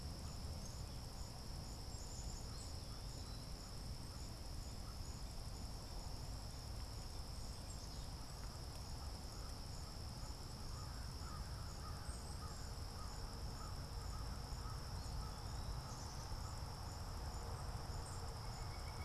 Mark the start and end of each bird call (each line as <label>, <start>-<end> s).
Black-capped Chickadee (Poecile atricapillus), 0.0-3.6 s
American Crow (Corvus brachyrhynchos), 0.0-5.0 s
Black-capped Chickadee (Poecile atricapillus), 7.2-19.0 s
American Crow (Corvus brachyrhynchos), 7.8-16.5 s
Pileated Woodpecker (Dryocopus pileatus), 17.9-19.0 s